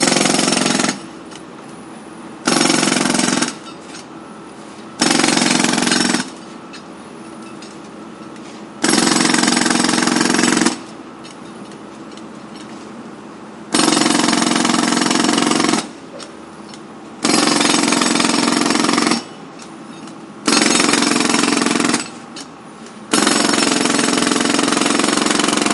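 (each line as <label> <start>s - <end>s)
A construction tool is used on stone in short bursts. 0.1s - 1.1s
A construction tool is used on stone in short bursts. 2.4s - 3.7s
A construction tool is used on stone in short bursts. 4.8s - 6.5s
A construction tool is used on stone in short bursts. 8.7s - 11.0s
A construction tool is used on stone in short bursts. 13.7s - 15.9s
A construction tool is used on stone in short bursts. 17.2s - 19.3s
A construction tool is used on stone in short bursts. 20.4s - 22.2s
A construction tool is used on stone in short bursts. 23.0s - 25.7s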